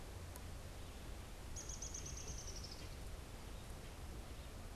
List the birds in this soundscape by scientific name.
Dryobates pubescens